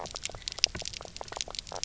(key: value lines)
label: biophony, knock croak
recorder: SoundTrap 300